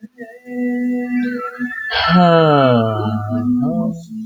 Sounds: Sigh